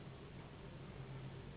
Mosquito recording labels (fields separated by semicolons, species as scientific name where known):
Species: Anopheles gambiae s.s.; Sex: female; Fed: unfed; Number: one; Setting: insect culture